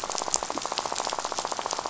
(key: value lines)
label: biophony, rattle
recorder: SoundTrap 500